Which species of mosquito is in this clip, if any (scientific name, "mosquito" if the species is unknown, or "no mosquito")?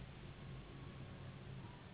Anopheles gambiae s.s.